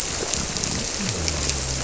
{"label": "biophony", "recorder": "SoundTrap 300"}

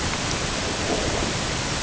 {"label": "ambient", "recorder": "HydroMoth"}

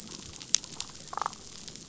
{"label": "biophony, damselfish", "recorder": "SoundTrap 500"}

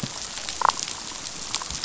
{"label": "biophony, damselfish", "recorder": "SoundTrap 500"}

